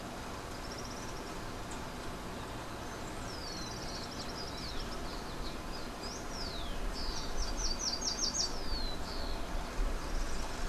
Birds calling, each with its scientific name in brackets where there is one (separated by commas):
Rufous-collared Sparrow (Zonotrichia capensis), Slate-throated Redstart (Myioborus miniatus), Common Tody-Flycatcher (Todirostrum cinereum)